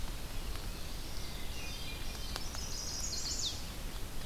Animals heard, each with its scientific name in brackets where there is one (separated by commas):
Common Yellowthroat (Geothlypis trichas), Chestnut-sided Warbler (Setophaga pensylvanica), Hermit Thrush (Catharus guttatus)